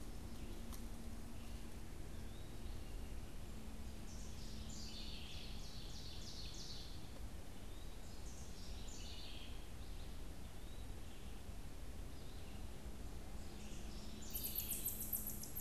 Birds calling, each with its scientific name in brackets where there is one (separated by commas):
Ovenbird (Seiurus aurocapilla), House Wren (Troglodytes aedon), Eastern Wood-Pewee (Contopus virens)